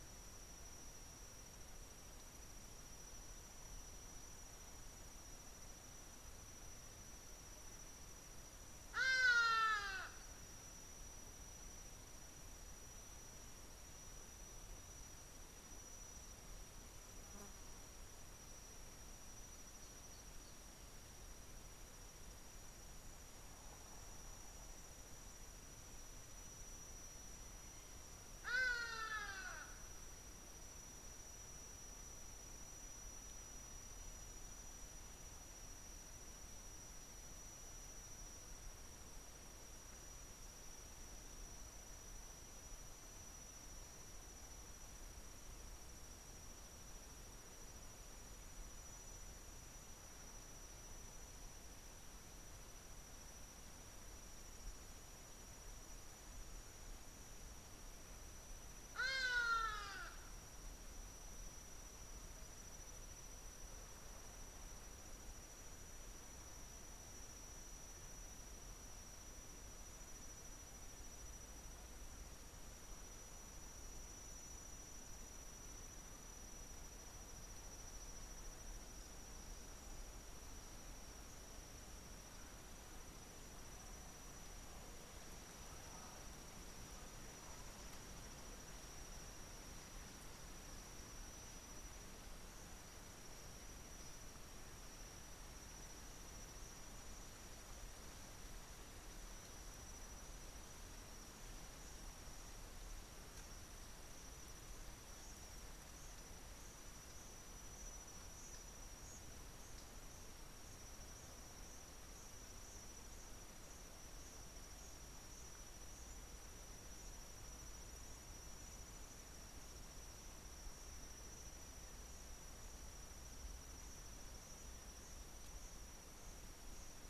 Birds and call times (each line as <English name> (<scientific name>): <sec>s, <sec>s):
Hadada Ibis (Bostrychia hagedash): 9.6s, 29.0s, 59.6s